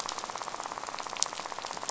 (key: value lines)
label: biophony, rattle
recorder: SoundTrap 500